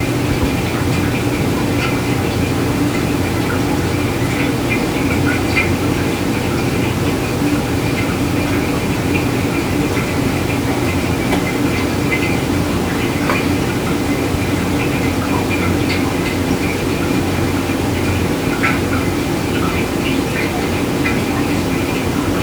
Does the air rushing sound stop and start again?
no